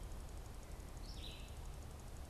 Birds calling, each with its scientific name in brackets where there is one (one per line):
Red-eyed Vireo (Vireo olivaceus)